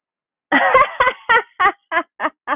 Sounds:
Laughter